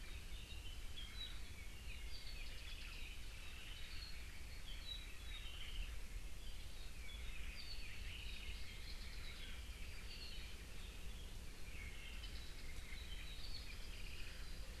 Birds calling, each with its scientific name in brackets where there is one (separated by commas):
Apapane (Himatione sanguinea), Japanese Bush Warbler (Horornis diphone)